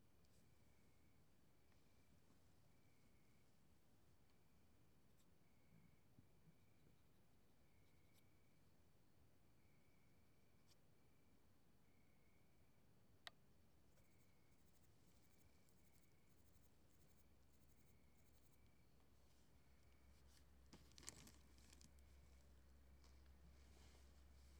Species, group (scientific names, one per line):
Poecilimon affinis
Orthoptera